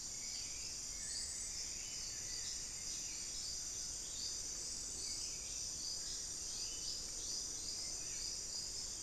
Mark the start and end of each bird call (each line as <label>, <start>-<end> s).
Buff-throated Saltator (Saltator maximus), 0.0-9.0 s
unidentified bird, 0.8-2.3 s